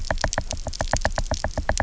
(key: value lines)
label: biophony, knock
recorder: SoundTrap 300